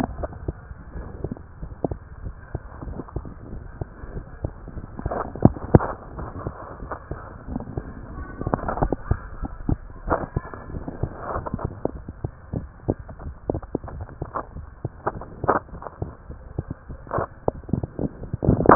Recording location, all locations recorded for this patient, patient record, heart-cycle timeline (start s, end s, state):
tricuspid valve (TV)
aortic valve (AV)+pulmonary valve (PV)+tricuspid valve (TV)+mitral valve (MV)
#Age: Child
#Sex: Male
#Height: 115.0 cm
#Weight: 23.5 kg
#Pregnancy status: False
#Murmur: Absent
#Murmur locations: nan
#Most audible location: nan
#Systolic murmur timing: nan
#Systolic murmur shape: nan
#Systolic murmur grading: nan
#Systolic murmur pitch: nan
#Systolic murmur quality: nan
#Diastolic murmur timing: nan
#Diastolic murmur shape: nan
#Diastolic murmur grading: nan
#Diastolic murmur pitch: nan
#Diastolic murmur quality: nan
#Outcome: Abnormal
#Campaign: 2015 screening campaign
0.00	0.63	unannotated
0.63	0.94	diastole
0.94	1.08	S1
1.08	1.14	systole
1.14	1.30	S2
1.30	1.60	diastole
1.60	1.70	S1
1.70	1.80	systole
1.80	1.96	S2
1.96	2.24	diastole
2.24	2.34	S1
2.34	2.49	systole
2.49	2.59	S2
2.59	2.86	diastole
2.86	3.04	S1
3.04	3.14	systole
3.14	3.24	S2
3.24	3.52	diastole
3.52	3.64	S1
3.64	3.76	systole
3.76	3.86	S2
3.86	4.14	diastole
4.14	4.24	S1
4.24	4.40	systole
4.40	4.49	S2
4.49	4.76	diastole
4.76	4.88	S1
4.88	5.02	systole
5.02	5.14	S2
5.14	5.44	diastole
5.44	5.60	S1
5.60	5.70	systole
5.70	5.86	S2
5.86	6.16	diastole
6.16	6.32	S1
6.32	6.42	systole
6.42	6.54	S2
6.54	6.82	diastole
6.82	6.98	S1
6.98	7.07	systole
7.07	7.20	S2
7.20	7.47	diastole
7.47	7.63	S1
7.63	7.73	systole
7.73	7.86	S2
7.86	8.16	diastole
8.16	8.30	S1
8.30	8.40	systole
8.40	8.53	S2
8.53	8.76	diastole
8.76	8.92	S1
8.92	9.02	systole
9.02	9.18	S2
9.18	9.40	diastole
9.40	9.53	S1
9.53	9.66	systole
9.66	9.78	S2
9.78	10.06	diastole
10.06	10.22	S1
10.22	10.32	systole
10.32	10.46	S2
10.46	10.71	diastole
10.71	10.86	S1
10.86	10.98	systole
10.98	11.09	S2
11.09	11.34	diastole
11.34	18.75	unannotated